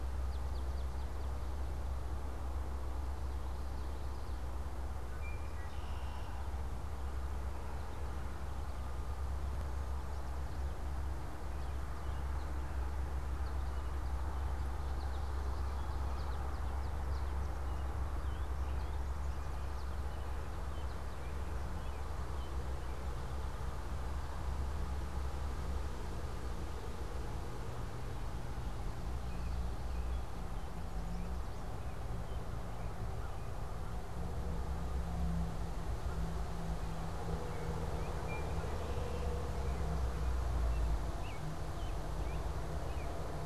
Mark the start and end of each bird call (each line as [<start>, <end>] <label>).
[0.00, 2.10] Swamp Sparrow (Melospiza georgiana)
[5.10, 6.60] Red-winged Blackbird (Agelaius phoeniceus)
[11.40, 20.00] American Goldfinch (Spinus tristis)
[20.50, 43.40] American Robin (Turdus migratorius)
[38.00, 39.40] Red-winged Blackbird (Agelaius phoeniceus)